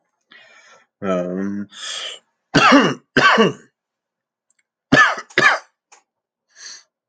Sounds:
Cough